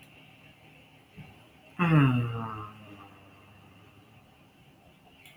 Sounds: Sigh